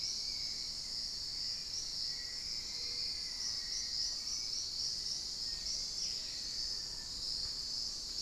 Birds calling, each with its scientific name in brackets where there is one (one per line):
Spot-winged Antshrike (Pygiptila stellaris)
Black-faced Antthrush (Formicarius analis)
Hauxwell's Thrush (Turdus hauxwelli)
unidentified bird